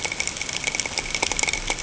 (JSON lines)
{"label": "ambient", "recorder": "HydroMoth"}